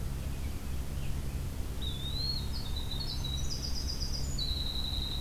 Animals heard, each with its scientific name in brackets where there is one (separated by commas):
Eastern Wood-Pewee (Contopus virens), Winter Wren (Troglodytes hiemalis)